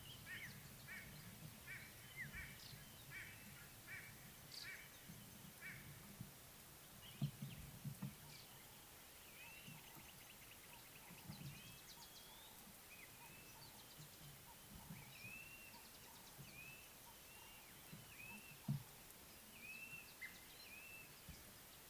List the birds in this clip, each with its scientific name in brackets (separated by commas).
African Black-headed Oriole (Oriolus larvatus), Blue-naped Mousebird (Urocolius macrourus), White-bellied Go-away-bird (Corythaixoides leucogaster)